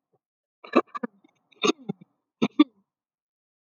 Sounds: Throat clearing